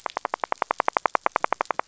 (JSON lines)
{"label": "biophony, rattle", "recorder": "SoundTrap 500"}